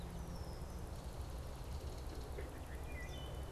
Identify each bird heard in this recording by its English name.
Red-winged Blackbird, Belted Kingfisher